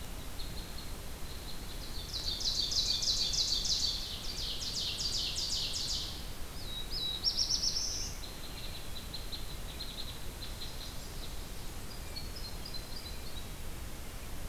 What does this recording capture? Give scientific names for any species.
Dryobates pubescens, Seiurus aurocapilla, Setophaga caerulescens, unidentified call